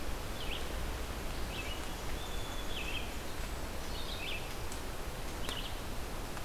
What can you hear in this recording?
Red-eyed Vireo, Song Sparrow